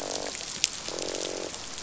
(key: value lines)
label: biophony, croak
recorder: SoundTrap 500